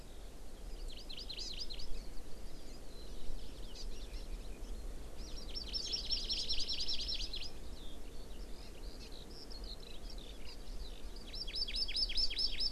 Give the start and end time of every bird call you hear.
[0.69, 1.99] Hawaii Amakihi (Chlorodrepanis virens)
[2.69, 2.79] Hawaii Amakihi (Chlorodrepanis virens)
[3.39, 4.49] Hawaii Amakihi (Chlorodrepanis virens)
[5.19, 7.49] Hawaii Amakihi (Chlorodrepanis virens)
[7.69, 12.71] Eurasian Skylark (Alauda arvensis)
[8.99, 9.09] Hawaii Amakihi (Chlorodrepanis virens)
[10.49, 10.59] Hawaii Amakihi (Chlorodrepanis virens)
[11.29, 12.71] Hawaii Amakihi (Chlorodrepanis virens)

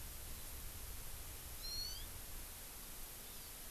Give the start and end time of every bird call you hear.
[1.53, 2.13] Hawaii Amakihi (Chlorodrepanis virens)
[3.23, 3.53] Hawaii Amakihi (Chlorodrepanis virens)

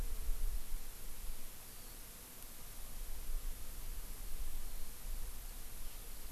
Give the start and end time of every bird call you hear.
[1.60, 2.00] Eurasian Skylark (Alauda arvensis)
[4.70, 6.31] Eurasian Skylark (Alauda arvensis)

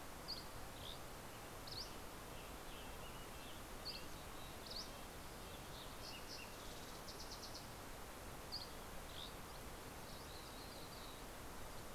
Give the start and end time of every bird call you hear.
[0.00, 1.90] Dusky Flycatcher (Empidonax oberholseri)
[1.20, 6.20] Red-breasted Nuthatch (Sitta canadensis)
[3.50, 6.20] Dusky Flycatcher (Empidonax oberholseri)
[5.10, 8.20] Fox Sparrow (Passerella iliaca)
[8.00, 9.60] Dusky Flycatcher (Empidonax oberholseri)
[9.40, 11.70] MacGillivray's Warbler (Geothlypis tolmiei)

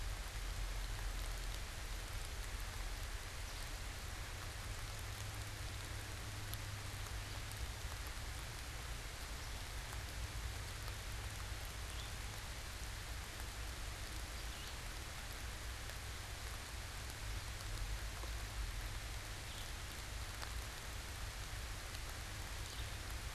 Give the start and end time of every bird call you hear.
[11.75, 12.35] Red-eyed Vireo (Vireo olivaceus)
[14.15, 15.05] Red-eyed Vireo (Vireo olivaceus)
[19.35, 19.85] Red-eyed Vireo (Vireo olivaceus)
[22.45, 23.25] Red-eyed Vireo (Vireo olivaceus)

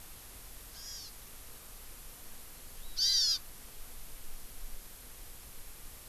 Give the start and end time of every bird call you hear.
[0.70, 1.10] Hawaii Amakihi (Chlorodrepanis virens)
[2.90, 3.40] Hawaii Amakihi (Chlorodrepanis virens)

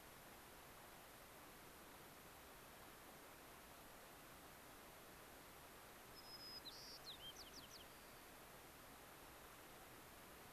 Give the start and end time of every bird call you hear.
[6.02, 8.42] White-crowned Sparrow (Zonotrichia leucophrys)

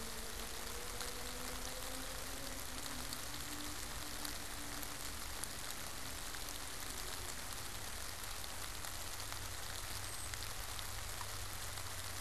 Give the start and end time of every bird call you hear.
[9.95, 10.45] Brown Creeper (Certhia americana)

